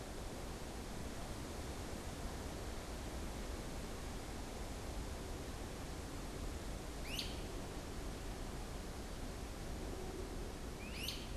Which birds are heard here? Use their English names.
Great Crested Flycatcher